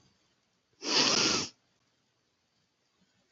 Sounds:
Sniff